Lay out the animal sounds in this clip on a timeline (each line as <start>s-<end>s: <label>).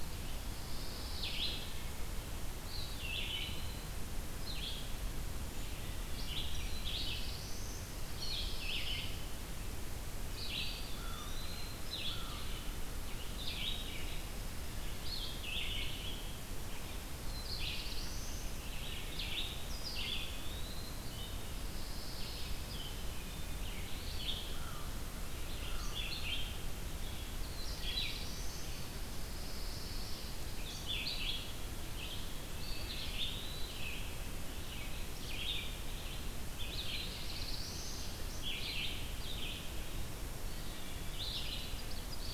0.0s-1.3s: Eastern Wood-Pewee (Contopus virens)
0.3s-1.6s: Pine Warbler (Setophaga pinus)
0.9s-42.3s: Red-eyed Vireo (Vireo olivaceus)
1.4s-2.1s: Wood Thrush (Hylocichla mustelina)
2.6s-4.0s: Eastern Wood-Pewee (Contopus virens)
5.7s-6.4s: Wood Thrush (Hylocichla mustelina)
6.5s-7.9s: Black-throated Blue Warbler (Setophaga caerulescens)
7.7s-9.3s: Pine Warbler (Setophaga pinus)
10.4s-11.7s: Eastern Wood-Pewee (Contopus virens)
10.9s-12.5s: American Crow (Corvus brachyrhynchos)
17.1s-18.5s: Black-throated Blue Warbler (Setophaga caerulescens)
19.6s-21.1s: Eastern Wood-Pewee (Contopus virens)
21.0s-21.6s: Wood Thrush (Hylocichla mustelina)
21.5s-22.8s: Pine Warbler (Setophaga pinus)
22.8s-23.6s: Wood Thrush (Hylocichla mustelina)
23.5s-25.0s: Eastern Wood-Pewee (Contopus virens)
24.4s-26.0s: American Crow (Corvus brachyrhynchos)
27.3s-28.8s: Black-throated Blue Warbler (Setophaga caerulescens)
29.0s-30.3s: Pine Warbler (Setophaga pinus)
32.4s-33.9s: Eastern Wood-Pewee (Contopus virens)
32.5s-33.3s: Wood Thrush (Hylocichla mustelina)
36.5s-38.1s: Black-throated Blue Warbler (Setophaga caerulescens)
40.4s-41.4s: Eastern Wood-Pewee (Contopus virens)
41.3s-42.3s: Ovenbird (Seiurus aurocapilla)